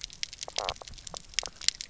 {"label": "biophony, knock croak", "recorder": "SoundTrap 300"}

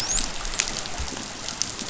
{"label": "biophony, dolphin", "recorder": "SoundTrap 500"}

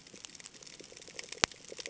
{"label": "ambient", "recorder": "HydroMoth"}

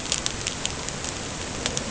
{"label": "ambient", "recorder": "HydroMoth"}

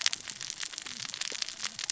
{"label": "biophony, cascading saw", "recorder": "SoundTrap 600 or HydroMoth"}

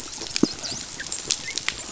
{"label": "biophony, dolphin", "recorder": "SoundTrap 500"}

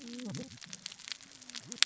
{"label": "biophony, cascading saw", "recorder": "SoundTrap 600 or HydroMoth"}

